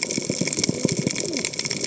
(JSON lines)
{"label": "biophony, cascading saw", "recorder": "HydroMoth"}